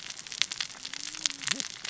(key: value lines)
label: biophony, cascading saw
recorder: SoundTrap 600 or HydroMoth